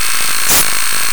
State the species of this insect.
Poecilimon veluchianus